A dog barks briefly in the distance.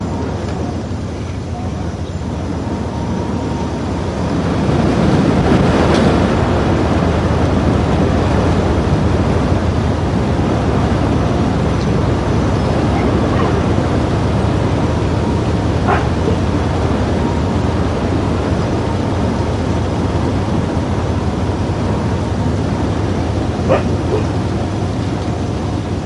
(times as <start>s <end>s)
15.8s 16.7s, 23.5s 24.4s